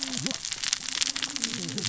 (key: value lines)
label: biophony, cascading saw
recorder: SoundTrap 600 or HydroMoth